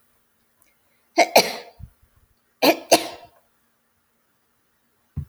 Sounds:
Sneeze